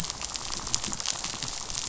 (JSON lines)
{"label": "biophony, rattle", "recorder": "SoundTrap 500"}